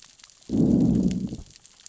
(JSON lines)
{"label": "biophony, growl", "recorder": "SoundTrap 600 or HydroMoth"}